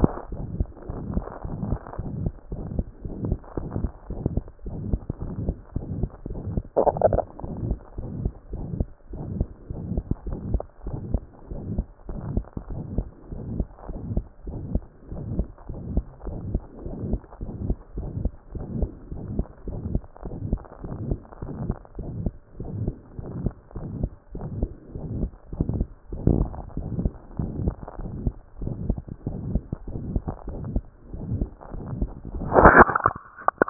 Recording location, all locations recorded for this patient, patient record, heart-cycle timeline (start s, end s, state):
mitral valve (MV)
pulmonary valve (PV)+tricuspid valve (TV)+mitral valve (MV)
#Age: Child
#Sex: Male
#Height: 104.0 cm
#Weight: 17.5 kg
#Pregnancy status: False
#Murmur: Present
#Murmur locations: mitral valve (MV)+pulmonary valve (PV)+tricuspid valve (TV)
#Most audible location: pulmonary valve (PV)
#Systolic murmur timing: Holosystolic
#Systolic murmur shape: Plateau
#Systolic murmur grading: I/VI
#Systolic murmur pitch: Medium
#Systolic murmur quality: Harsh
#Diastolic murmur timing: nan
#Diastolic murmur shape: nan
#Diastolic murmur grading: nan
#Diastolic murmur pitch: nan
#Diastolic murmur quality: nan
#Outcome: Abnormal
#Campaign: 2014 screening campaign
0.00	10.78	unannotated
10.78	10.86	diastole
10.86	10.98	S1
10.98	11.10	systole
11.10	11.22	S2
11.22	11.52	diastole
11.52	11.60	S1
11.60	11.74	systole
11.74	11.84	S2
11.84	12.10	diastole
12.10	12.20	S1
12.20	12.34	systole
12.34	12.42	S2
12.42	12.70	diastole
12.70	12.82	S1
12.82	12.96	systole
12.96	13.06	S2
13.06	13.32	diastole
13.32	13.44	S1
13.44	13.56	systole
13.56	13.66	S2
13.66	13.90	diastole
13.90	14.00	S1
14.00	14.12	systole
14.12	14.24	S2
14.24	14.48	diastole
14.48	14.60	S1
14.60	14.72	systole
14.72	14.82	S2
14.82	15.12	diastole
15.12	15.24	S1
15.24	15.36	systole
15.36	15.46	S2
15.46	15.70	diastole
15.70	15.82	S1
15.82	15.94	systole
15.94	16.02	S2
16.02	16.28	diastole
16.28	16.38	S1
16.38	16.50	systole
16.50	16.60	S2
16.60	16.86	diastole
16.86	16.96	S1
16.96	17.08	systole
17.08	17.20	S2
17.20	17.42	diastole
17.42	17.52	S1
17.52	17.64	systole
17.64	17.74	S2
17.74	17.98	diastole
17.98	18.08	S1
18.08	18.22	systole
18.22	18.30	S2
18.30	18.56	diastole
18.56	18.66	S1
18.66	18.78	systole
18.78	18.90	S2
18.90	19.12	diastole
19.12	19.24	S1
19.24	19.36	systole
19.36	19.44	S2
19.44	19.68	diastole
19.68	19.80	S1
19.80	19.92	systole
19.92	20.00	S2
20.00	20.26	diastole
20.26	20.38	S1
20.38	20.50	systole
20.50	20.60	S2
20.60	20.85	diastole
20.85	20.96	S1
20.96	21.11	systole
21.11	21.18	S2
21.18	21.43	diastole
21.43	21.54	S1
21.54	21.69	systole
21.69	21.77	S2
21.77	22.00	diastole
22.00	22.12	S1
22.12	22.22	systole
22.22	22.32	S2
22.32	22.59	diastole
22.59	33.70	unannotated